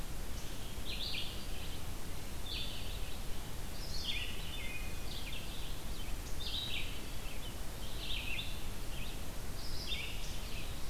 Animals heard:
Red-eyed Vireo (Vireo olivaceus)
Wood Thrush (Hylocichla mustelina)

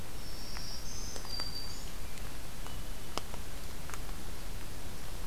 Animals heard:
Black-throated Green Warbler (Setophaga virens)
Hermit Thrush (Catharus guttatus)

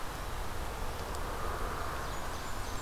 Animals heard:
Ovenbird (Seiurus aurocapilla)
Blackburnian Warbler (Setophaga fusca)

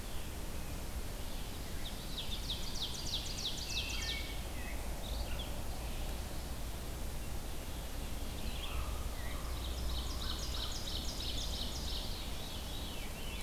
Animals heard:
Red-eyed Vireo (Vireo olivaceus)
American Crow (Corvus brachyrhynchos)
Common Raven (Corvus corax)
Wood Thrush (Hylocichla mustelina)
Veery (Catharus fuscescens)
Ovenbird (Seiurus aurocapilla)

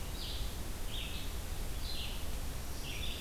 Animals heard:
Black-throated Green Warbler (Setophaga virens)
Red-eyed Vireo (Vireo olivaceus)

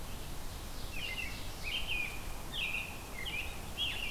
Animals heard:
Ovenbird (Seiurus aurocapilla)
American Robin (Turdus migratorius)

